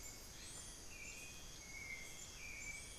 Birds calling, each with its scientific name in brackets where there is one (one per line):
Hauxwell's Thrush (Turdus hauxwelli)